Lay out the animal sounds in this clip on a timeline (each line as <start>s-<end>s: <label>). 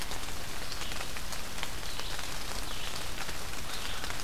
0.0s-4.2s: Red-eyed Vireo (Vireo olivaceus)
3.3s-4.2s: American Crow (Corvus brachyrhynchos)